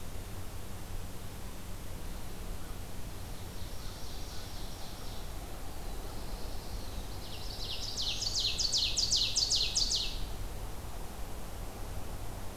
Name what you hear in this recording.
Ovenbird, Black-throated Blue Warbler